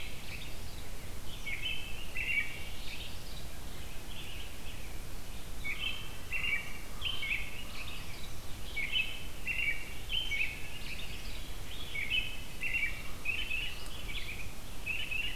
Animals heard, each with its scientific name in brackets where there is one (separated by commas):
American Robin (Turdus migratorius), Red-eyed Vireo (Vireo olivaceus)